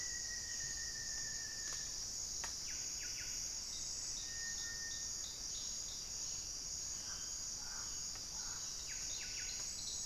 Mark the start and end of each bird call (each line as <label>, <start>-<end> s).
Rufous-fronted Antthrush (Formicarius rufifrons), 0.0-2.0 s
Buff-breasted Wren (Cantorchilus leucotis), 1.0-10.1 s
White-flanked Antwren (Myrmotherula axillaris), 3.2-5.2 s